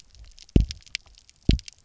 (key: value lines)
label: biophony, double pulse
recorder: SoundTrap 300